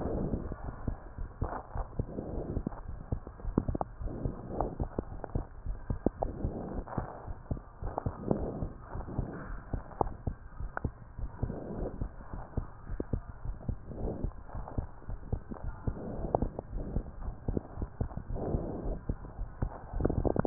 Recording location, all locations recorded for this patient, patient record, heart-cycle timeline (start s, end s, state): pulmonary valve (PV)
aortic valve (AV)+pulmonary valve (PV)+tricuspid valve (TV)+mitral valve (MV)
#Age: Adolescent
#Sex: Male
#Height: nan
#Weight: nan
#Pregnancy status: False
#Murmur: Absent
#Murmur locations: nan
#Most audible location: nan
#Systolic murmur timing: nan
#Systolic murmur shape: nan
#Systolic murmur grading: nan
#Systolic murmur pitch: nan
#Systolic murmur quality: nan
#Diastolic murmur timing: nan
#Diastolic murmur shape: nan
#Diastolic murmur grading: nan
#Diastolic murmur pitch: nan
#Diastolic murmur quality: nan
#Outcome: Normal
#Campaign: 2015 screening campaign
0.00	8.38	unannotated
8.38	8.48	S1
8.48	8.58	systole
8.58	8.72	S2
8.72	8.96	diastole
8.96	9.06	S1
9.06	9.16	systole
9.16	9.30	S2
9.30	9.50	diastole
9.50	9.60	S1
9.60	9.72	systole
9.72	9.82	S2
9.82	10.00	diastole
10.00	10.14	S1
10.14	10.28	systole
10.28	10.36	S2
10.36	10.60	diastole
10.60	10.70	S1
10.70	10.82	systole
10.82	10.92	S2
10.92	11.20	diastole
11.20	11.32	S1
11.32	11.42	systole
11.42	11.56	S2
11.56	11.76	diastole
11.76	11.92	S1
11.92	12.00	systole
12.00	12.14	S2
12.14	12.30	diastole
12.30	12.44	S1
12.44	12.56	systole
12.56	12.70	S2
12.70	12.90	diastole
12.90	13.03	S1
13.03	13.12	systole
13.12	13.24	S2
13.24	13.46	diastole
13.46	13.58	S1
13.58	13.64	systole
13.64	13.78	S2
13.78	14.00	diastole
14.00	14.16	S1
14.16	14.22	systole
14.22	14.36	S2
14.36	14.56	diastole
14.56	14.66	S1
14.66	14.76	systole
14.76	14.90	S2
14.90	15.10	diastole
15.10	15.20	S1
15.20	15.28	systole
15.28	15.40	S2
15.40	15.64	diastole
15.64	15.78	S1
15.78	15.86	systole
15.86	15.96	S2
15.96	16.18	diastole
16.18	16.30	S1
16.30	16.40	systole
16.40	16.56	S2
16.56	16.74	diastole
16.74	16.84	S1
16.84	16.93	systole
16.93	17.04	S2
17.04	17.22	diastole
17.22	17.34	S1
17.34	17.44	systole
17.44	17.58	S2
17.58	17.78	diastole
17.78	17.90	S1
17.90	17.96	systole
17.96	18.08	S2
18.08	18.30	diastole
18.30	18.44	S1
18.44	18.50	systole
18.50	18.64	S2
18.64	18.84	diastole
18.84	18.98	S1
18.98	19.08	systole
19.08	19.18	S2
19.18	19.40	diastole
19.40	19.50	S1
19.50	19.58	systole
19.58	19.72	S2
19.72	19.96	diastole
19.96	20.46	unannotated